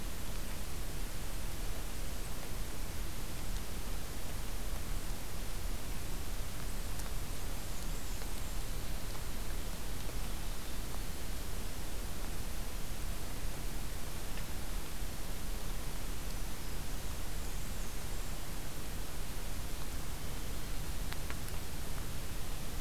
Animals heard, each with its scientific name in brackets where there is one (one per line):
Black-and-white Warbler (Mniotilta varia)
Black-throated Green Warbler (Setophaga virens)